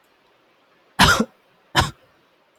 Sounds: Throat clearing